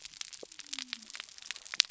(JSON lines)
{"label": "biophony", "recorder": "SoundTrap 300"}